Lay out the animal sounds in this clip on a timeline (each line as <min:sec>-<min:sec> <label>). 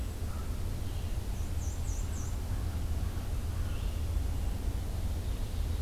0:00.0-0:00.6 American Crow (Corvus brachyrhynchos)
0:00.0-0:01.4 Red-eyed Vireo (Vireo olivaceus)
0:01.3-0:02.5 Black-and-white Warbler (Mniotilta varia)
0:01.8-0:05.8 Red-eyed Vireo (Vireo olivaceus)
0:01.9-0:03.9 American Crow (Corvus brachyrhynchos)